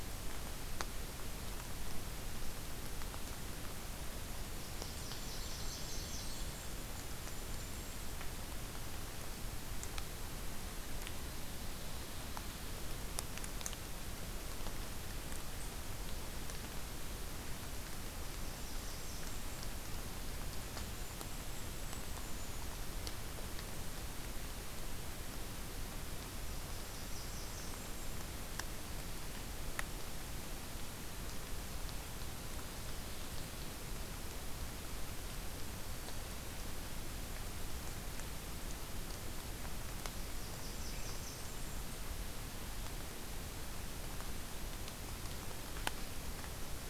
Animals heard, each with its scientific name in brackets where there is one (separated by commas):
Blackburnian Warbler (Setophaga fusca), Golden-crowned Kinglet (Regulus satrapa)